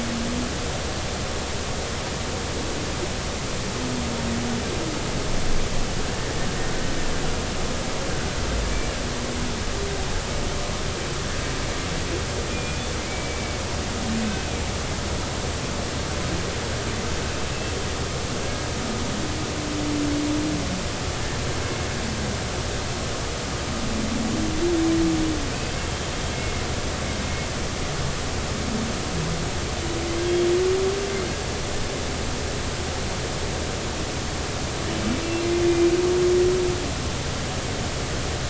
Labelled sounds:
8.6	8.9	humpback whale, 2.2 to 2.4 kHz
12.5	13.6	humpback whale, 2.0 to 2.5 kHz
14.2	14.6	humpback whale, 2.2 to 2.6 kHz
26.3	26.6	humpback whale, 2.0 to 2.2 kHz

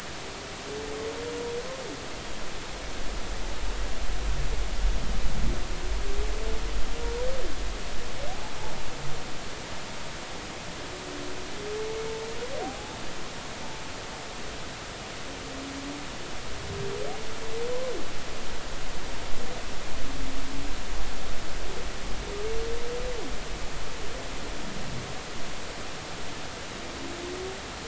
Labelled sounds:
12.6	13.0	humpback whale, 0.80 to 0.93 kHz

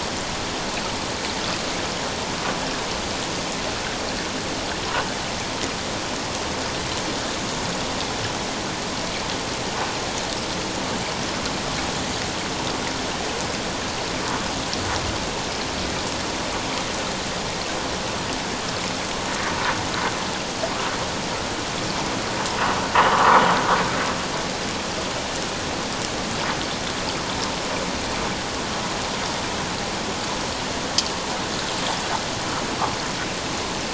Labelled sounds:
23.1	23.4	vessel noise, 0.91 to 1.5 kHz

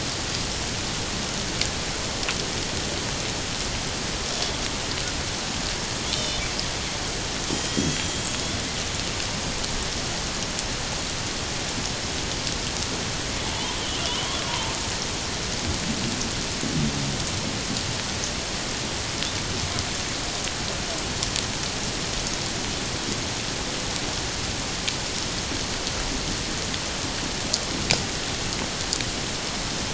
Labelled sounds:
6.1	6.4	killer whale, 2.9 to 5.5 kHz
7.5	8.3	killer whale, 3.2 to 7.3 kHz
13.4	14.7	killer whale, 0.81 to 3.6 kHz

